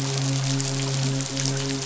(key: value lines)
label: biophony, midshipman
recorder: SoundTrap 500